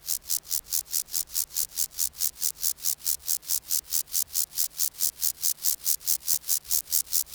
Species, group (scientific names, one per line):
Chorthippus vagans
Orthoptera